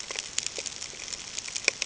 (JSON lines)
{"label": "ambient", "recorder": "HydroMoth"}